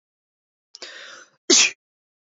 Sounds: Sneeze